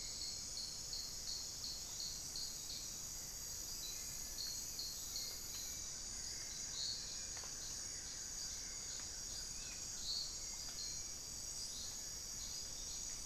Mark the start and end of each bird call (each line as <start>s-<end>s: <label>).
0.0s-13.3s: Hauxwell's Thrush (Turdus hauxwelli)
5.3s-10.9s: Buff-throated Woodcreeper (Xiphorhynchus guttatus)